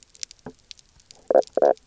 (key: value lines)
label: biophony, knock croak
recorder: SoundTrap 300